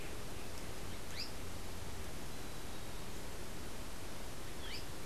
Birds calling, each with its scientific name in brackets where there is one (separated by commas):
Azara's Spinetail (Synallaxis azarae)